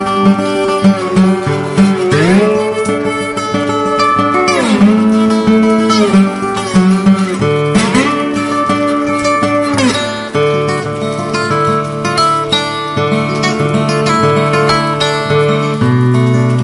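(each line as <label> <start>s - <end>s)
An upbeat acoustic guitar plays a rhythmic tune with folk and blues elements. 0.0s - 16.6s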